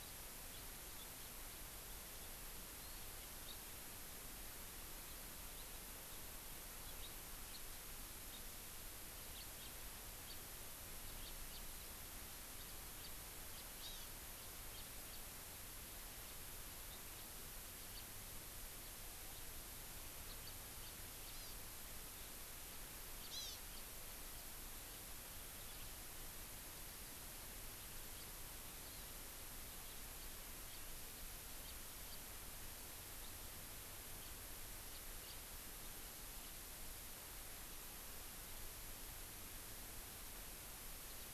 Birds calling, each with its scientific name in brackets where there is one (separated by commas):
Hawaii Amakihi (Chlorodrepanis virens), House Finch (Haemorhous mexicanus), Warbling White-eye (Zosterops japonicus)